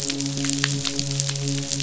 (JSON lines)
{"label": "biophony, midshipman", "recorder": "SoundTrap 500"}